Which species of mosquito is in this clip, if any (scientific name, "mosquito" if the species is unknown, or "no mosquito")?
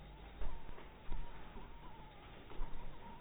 mosquito